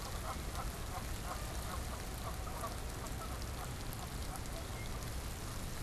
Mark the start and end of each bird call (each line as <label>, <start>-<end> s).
Canada Goose (Branta canadensis), 0.0-5.8 s